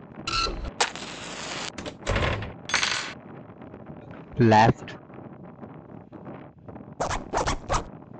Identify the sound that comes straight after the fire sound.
door